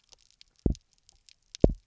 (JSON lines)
{"label": "biophony, double pulse", "recorder": "SoundTrap 300"}